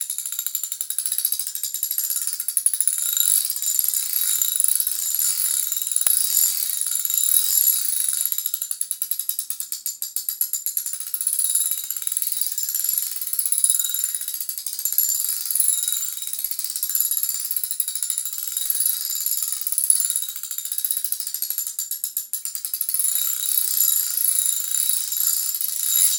Is this device speeding up and slowing down?
yes